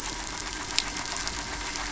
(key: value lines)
label: anthrophony, boat engine
recorder: SoundTrap 500